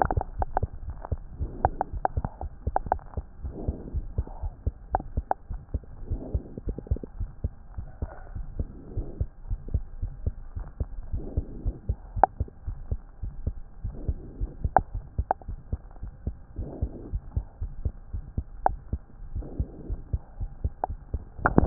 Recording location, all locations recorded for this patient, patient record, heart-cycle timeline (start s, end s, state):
pulmonary valve (PV)
aortic valve (AV)+pulmonary valve (PV)+tricuspid valve (TV)+mitral valve (MV)
#Age: Infant
#Sex: Male
#Height: 68.0 cm
#Weight: 7.0 kg
#Pregnancy status: False
#Murmur: Present
#Murmur locations: pulmonary valve (PV)+tricuspid valve (TV)
#Most audible location: pulmonary valve (PV)
#Systolic murmur timing: Early-systolic
#Systolic murmur shape: Plateau
#Systolic murmur grading: I/VI
#Systolic murmur pitch: Low
#Systolic murmur quality: Blowing
#Diastolic murmur timing: nan
#Diastolic murmur shape: nan
#Diastolic murmur grading: nan
#Diastolic murmur pitch: nan
#Diastolic murmur quality: nan
#Outcome: Abnormal
#Campaign: 2015 screening campaign
0.00	7.08	unannotated
7.08	7.18	diastole
7.18	7.30	S1
7.30	7.40	systole
7.40	7.52	S2
7.52	7.76	diastole
7.76	7.88	S1
7.88	7.98	systole
7.98	8.10	S2
8.10	8.32	diastole
8.32	8.46	S1
8.46	8.58	systole
8.58	8.70	S2
8.70	8.94	diastole
8.94	9.08	S1
9.08	9.18	systole
9.18	9.28	S2
9.28	9.46	diastole
9.46	9.60	S1
9.60	9.72	systole
9.72	9.86	S2
9.86	10.00	diastole
10.00	10.14	S1
10.14	10.24	systole
10.24	10.34	S2
10.34	10.54	diastole
10.54	10.68	S1
10.68	10.76	systole
10.76	10.88	S2
10.88	11.10	diastole
11.10	11.24	S1
11.24	11.36	systole
11.36	11.50	S2
11.50	11.64	diastole
11.64	11.76	S1
11.76	11.88	systole
11.88	11.98	S2
11.98	12.14	diastole
12.14	12.28	S1
12.28	12.36	systole
12.36	12.48	S2
12.48	12.66	diastole
12.66	12.78	S1
12.78	12.90	systole
12.90	13.00	S2
13.00	13.22	diastole
13.22	13.34	S1
13.34	13.46	systole
13.46	13.60	S2
13.60	13.82	diastole
13.82	13.96	S1
13.96	14.06	systole
14.06	14.18	S2
14.18	14.38	diastole
14.38	14.52	S1
14.52	14.60	systole
14.60	14.74	S2
14.74	14.92	diastole
14.92	15.04	S1
15.04	15.14	systole
15.14	15.30	S2
15.30	15.48	diastole
15.48	15.60	S1
15.60	15.68	systole
15.68	15.82	S2
15.82	16.02	diastole
16.02	16.12	S1
16.12	16.26	systole
16.26	16.36	S2
16.36	16.58	diastole
16.58	16.70	S1
16.70	16.80	systole
16.80	16.92	S2
16.92	17.12	diastole
17.12	17.22	S1
17.22	17.32	systole
17.32	17.44	S2
17.44	17.60	diastole
17.60	17.74	S1
17.74	17.82	systole
17.82	17.92	S2
17.92	18.12	diastole
18.12	18.24	S1
18.24	18.34	systole
18.34	18.46	S2
18.46	18.64	diastole
18.64	18.80	S1
18.80	18.90	systole
18.90	19.00	S2
19.00	19.24	diastole
19.24	19.42	S1
19.42	19.58	systole
19.58	19.70	S2
19.70	19.90	diastole
19.90	20.02	S1
20.02	20.10	systole
20.10	20.24	S2
20.24	20.40	diastole
20.40	20.50	S1
20.50	20.60	systole
20.60	20.72	S2
20.72	20.88	diastole
20.88	21.00	S1
21.00	21.08	systole
21.08	21.66	unannotated